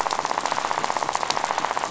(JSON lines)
{"label": "biophony, rattle", "recorder": "SoundTrap 500"}